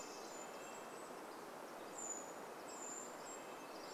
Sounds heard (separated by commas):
Golden-crowned Kinglet song, Red-breasted Nuthatch song, Brown Creeper call, Golden-crowned Kinglet call